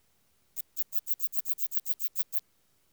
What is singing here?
Phaneroptera falcata, an orthopteran